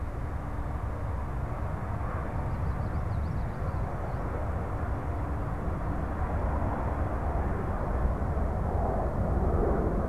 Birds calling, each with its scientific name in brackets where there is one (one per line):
Chestnut-sided Warbler (Setophaga pensylvanica)